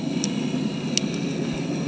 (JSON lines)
{"label": "anthrophony, boat engine", "recorder": "HydroMoth"}